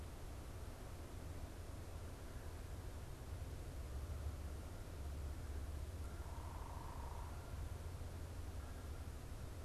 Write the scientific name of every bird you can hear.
Branta canadensis, unidentified bird